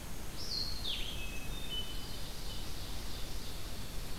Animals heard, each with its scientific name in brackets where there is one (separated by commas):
Hermit Thrush (Catharus guttatus), Red-eyed Vireo (Vireo olivaceus), Ovenbird (Seiurus aurocapilla), Downy Woodpecker (Dryobates pubescens)